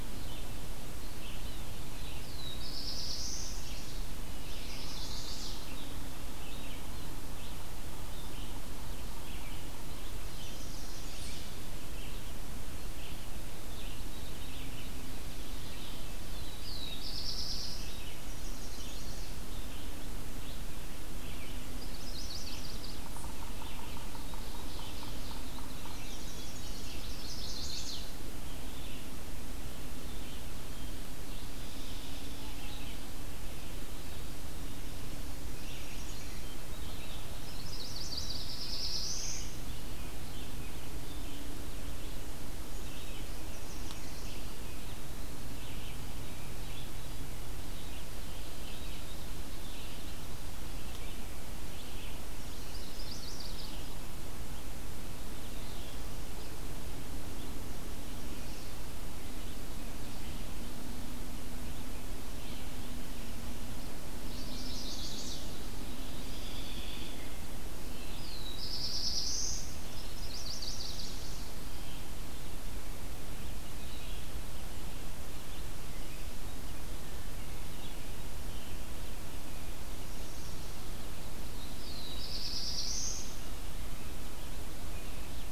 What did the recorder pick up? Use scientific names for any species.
Vireo olivaceus, Sphyrapicus varius, Setophaga caerulescens, Setophaga pensylvanica, Seiurus aurocapilla, Turdus migratorius, Setophaga coronata, Contopus virens